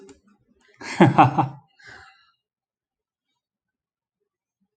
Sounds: Laughter